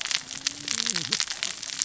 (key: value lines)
label: biophony, cascading saw
recorder: SoundTrap 600 or HydroMoth